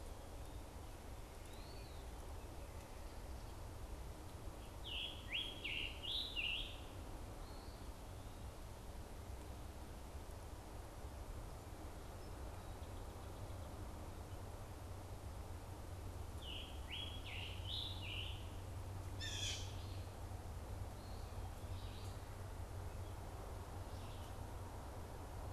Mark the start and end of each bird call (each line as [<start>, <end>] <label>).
[4.57, 7.17] Scarlet Tanager (Piranga olivacea)
[16.17, 18.57] Scarlet Tanager (Piranga olivacea)
[18.97, 19.97] Blue Jay (Cyanocitta cristata)